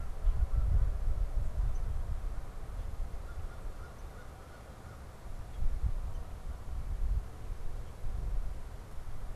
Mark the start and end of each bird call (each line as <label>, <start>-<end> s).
Downy Woodpecker (Dryobates pubescens), 1.7-1.9 s
American Crow (Corvus brachyrhynchos), 3.2-5.1 s
Downy Woodpecker (Dryobates pubescens), 3.9-4.1 s
Downy Woodpecker (Dryobates pubescens), 6.1-6.3 s